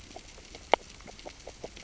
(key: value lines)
label: biophony, grazing
recorder: SoundTrap 600 or HydroMoth